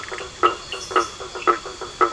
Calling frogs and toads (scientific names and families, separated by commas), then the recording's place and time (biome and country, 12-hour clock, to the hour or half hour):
Boana faber (Hylidae), Elachistocleis bicolor (Microhylidae), Sphaenorhynchus surdus (Hylidae)
Atlantic Forest, Brazil, 9:30pm